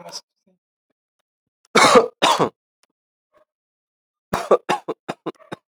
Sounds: Cough